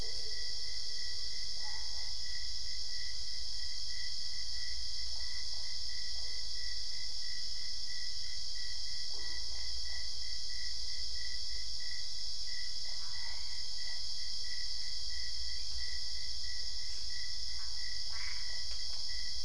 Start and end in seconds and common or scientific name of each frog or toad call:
5.0	6.4	Usina tree frog
8.9	10.6	Usina tree frog
13.0	13.9	Boana albopunctata
18.0	18.9	Boana albopunctata